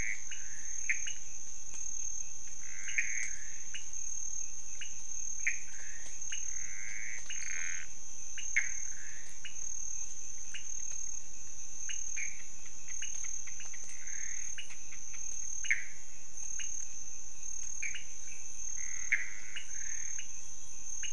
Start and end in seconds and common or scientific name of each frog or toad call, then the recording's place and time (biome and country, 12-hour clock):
0.0	9.4	Pithecopus azureus
0.0	18.1	pointedbelly frog
7.2	7.9	Chaco tree frog
12.1	12.4	Pithecopus azureus
13.9	14.5	Pithecopus azureus
18.7	20.2	Pithecopus azureus
19.5	21.1	pointedbelly frog
Cerrado, Brazil, 3:15am